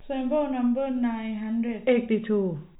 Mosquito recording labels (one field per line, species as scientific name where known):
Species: no mosquito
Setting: cup